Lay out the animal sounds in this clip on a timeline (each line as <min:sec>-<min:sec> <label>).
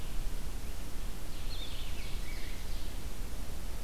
0:01.2-0:03.0 Ovenbird (Seiurus aurocapilla)